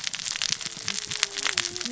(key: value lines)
label: biophony, cascading saw
recorder: SoundTrap 600 or HydroMoth